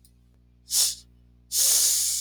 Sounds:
Sniff